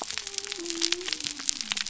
{"label": "biophony", "recorder": "SoundTrap 300"}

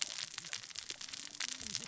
{"label": "biophony, cascading saw", "recorder": "SoundTrap 600 or HydroMoth"}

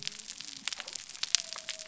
{"label": "biophony", "recorder": "SoundTrap 300"}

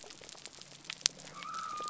{"label": "biophony", "recorder": "SoundTrap 300"}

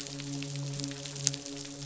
{"label": "biophony, midshipman", "recorder": "SoundTrap 500"}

